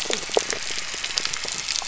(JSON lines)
{"label": "anthrophony, boat engine", "recorder": "SoundTrap 300"}